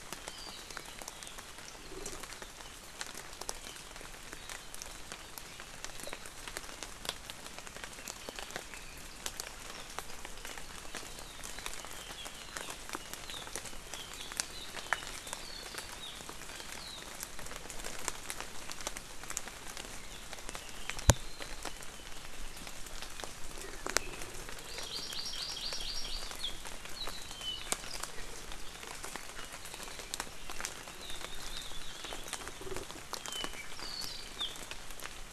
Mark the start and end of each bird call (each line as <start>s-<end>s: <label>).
11.9s-16.2s: Apapane (Himatione sanguinea)
24.7s-26.3s: Hawaii Amakihi (Chlorodrepanis virens)
31.0s-32.5s: Hawaii Akepa (Loxops coccineus)
33.2s-34.6s: Apapane (Himatione sanguinea)